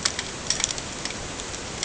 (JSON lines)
{"label": "ambient", "recorder": "HydroMoth"}